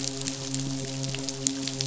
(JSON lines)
{"label": "biophony, midshipman", "recorder": "SoundTrap 500"}
{"label": "biophony", "recorder": "SoundTrap 500"}